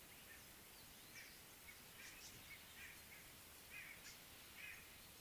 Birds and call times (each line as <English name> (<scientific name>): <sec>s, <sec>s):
White-bellied Go-away-bird (Corythaixoides leucogaster): 3.8s